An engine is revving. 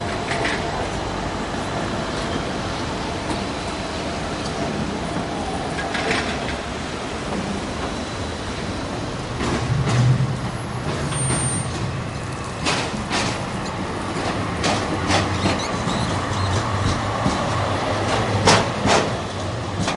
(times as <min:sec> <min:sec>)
0:09.3 0:10.8